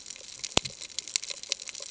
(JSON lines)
{"label": "ambient", "recorder": "HydroMoth"}